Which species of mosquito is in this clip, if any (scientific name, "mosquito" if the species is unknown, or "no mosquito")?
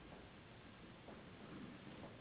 Anopheles gambiae s.s.